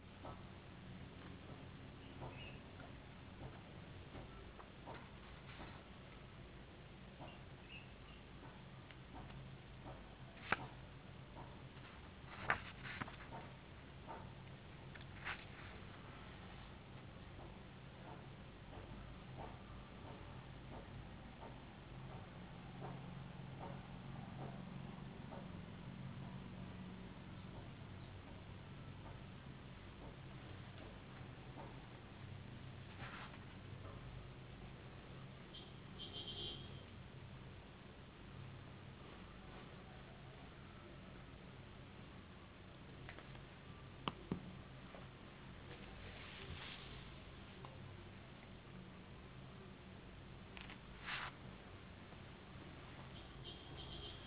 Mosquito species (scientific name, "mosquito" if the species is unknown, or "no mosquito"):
no mosquito